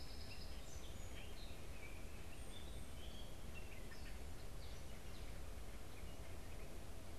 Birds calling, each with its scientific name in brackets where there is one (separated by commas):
Gray Catbird (Dumetella carolinensis), Song Sparrow (Melospiza melodia)